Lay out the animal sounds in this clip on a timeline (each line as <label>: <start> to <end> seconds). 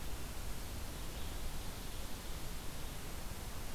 Red-eyed Vireo (Vireo olivaceus): 0.0 to 3.7 seconds